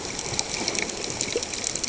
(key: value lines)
label: ambient
recorder: HydroMoth